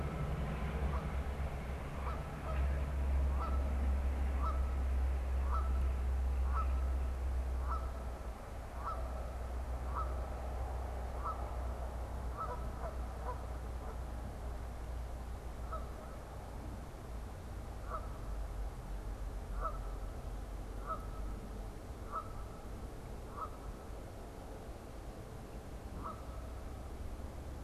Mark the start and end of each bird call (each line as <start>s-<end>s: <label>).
0.0s-27.6s: Canada Goose (Branta canadensis)